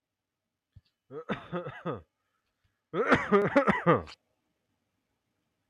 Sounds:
Cough